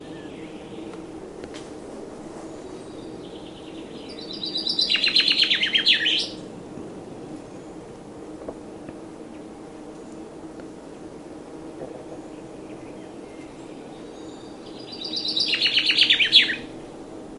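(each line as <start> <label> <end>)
0.0 Slow, rumbling static noise with distant, quiet birds chirping in the background. 4.2
4.1 Rhythmic, sharp bird chirping nearby. 6.6
6.6 Rumbling static white noise continues slowly. 17.4
13.2 Slow rumbling static noise with distant birds chirping quietly in the background. 14.7
14.6 Rhythmic, sharp bird chirping nearby. 17.4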